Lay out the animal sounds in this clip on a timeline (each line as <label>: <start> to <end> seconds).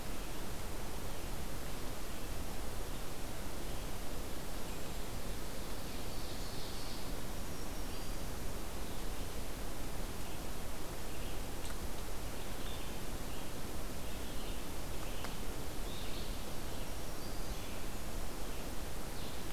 Ovenbird (Seiurus aurocapilla): 5.6 to 7.1 seconds
Black-throated Green Warbler (Setophaga virens): 7.3 to 8.4 seconds
Red-eyed Vireo (Vireo olivaceus): 11.0 to 19.5 seconds
Black-throated Green Warbler (Setophaga virens): 16.7 to 17.7 seconds